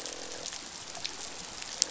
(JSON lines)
{"label": "biophony, croak", "recorder": "SoundTrap 500"}